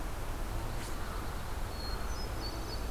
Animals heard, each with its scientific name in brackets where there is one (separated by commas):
Pine Warbler (Setophaga pinus), American Crow (Corvus brachyrhynchos), Hermit Thrush (Catharus guttatus)